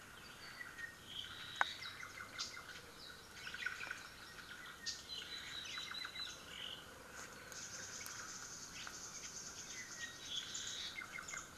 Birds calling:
Omao (Myadestes obscurus), Apapane (Himatione sanguinea), Red-billed Leiothrix (Leiothrix lutea), Warbling White-eye (Zosterops japonicus), Hawaii Amakihi (Chlorodrepanis virens)

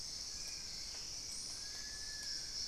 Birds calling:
Spot-winged Antshrike (Pygiptila stellaris), unidentified bird, Long-billed Woodcreeper (Nasica longirostris)

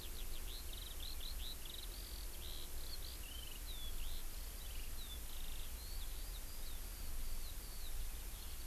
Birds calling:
Eurasian Skylark (Alauda arvensis)

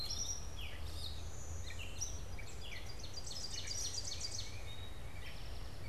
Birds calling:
Tufted Titmouse (Baeolophus bicolor), Ovenbird (Seiurus aurocapilla), Blue-winged Warbler (Vermivora cyanoptera), Eastern Towhee (Pipilo erythrophthalmus), Gray Catbird (Dumetella carolinensis)

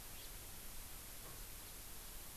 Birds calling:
House Finch (Haemorhous mexicanus)

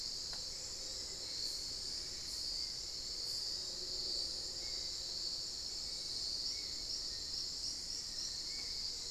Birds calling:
Little Tinamou (Crypturellus soui), Spot-winged Antshrike (Pygiptila stellaris)

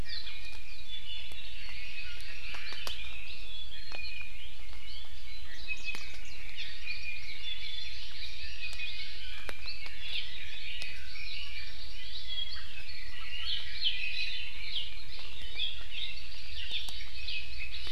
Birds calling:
Hawaii Amakihi (Chlorodrepanis virens), Warbling White-eye (Zosterops japonicus), Red-billed Leiothrix (Leiothrix lutea), Iiwi (Drepanis coccinea)

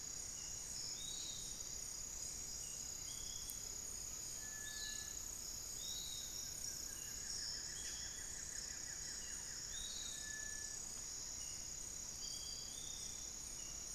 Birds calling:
Cinereous Tinamou (Crypturellus cinereus), Piratic Flycatcher (Legatus leucophaius), Thrush-like Wren (Campylorhynchus turdinus), Buff-throated Woodcreeper (Xiphorhynchus guttatus)

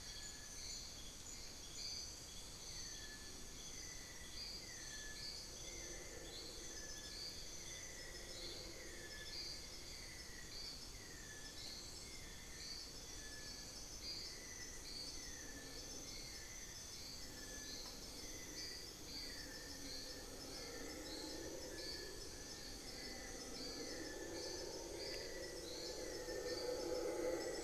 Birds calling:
Cinnamon-throated Woodcreeper (Dendrexetastes rufigula), Fasciated Antshrike (Cymbilaimus lineatus)

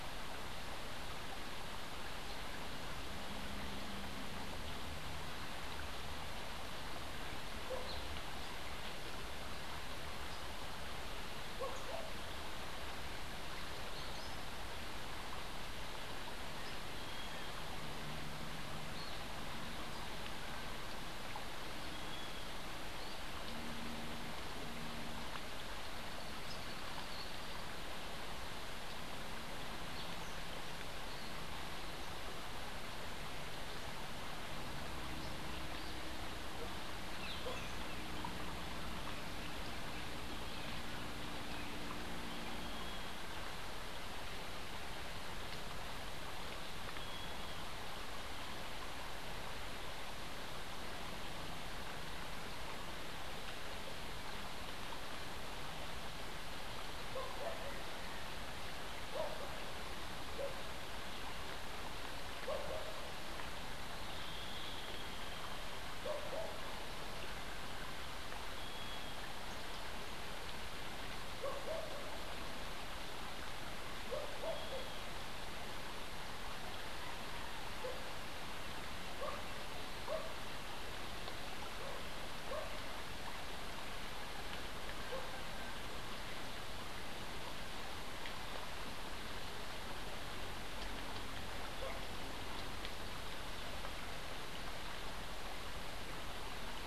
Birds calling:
Dusky-capped Flycatcher (Myiarchus tuberculifer), Brown Jay (Psilorhinus morio)

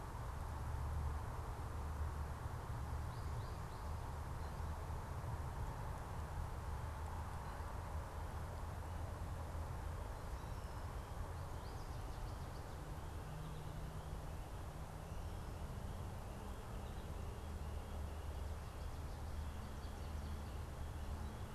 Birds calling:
American Goldfinch (Spinus tristis)

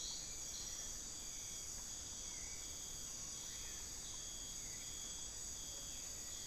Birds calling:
Black-billed Thrush (Turdus ignobilis), Rufous-fronted Antthrush (Formicarius rufifrons)

